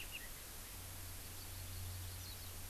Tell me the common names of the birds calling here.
Hawaii Amakihi